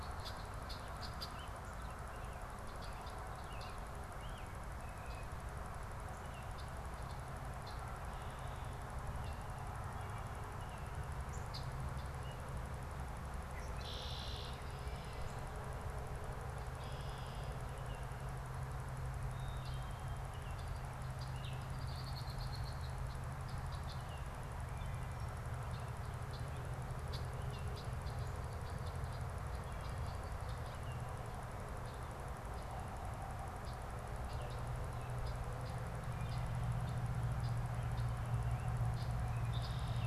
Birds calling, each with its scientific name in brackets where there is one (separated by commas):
Northern Cardinal (Cardinalis cardinalis), American Robin (Turdus migratorius), Red-winged Blackbird (Agelaius phoeniceus)